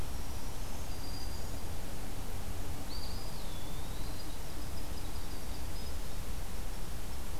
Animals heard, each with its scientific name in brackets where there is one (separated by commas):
Winter Wren (Troglodytes hiemalis), Black-throated Green Warbler (Setophaga virens), Eastern Wood-Pewee (Contopus virens)